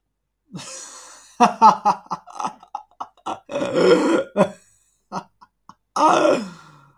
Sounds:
Laughter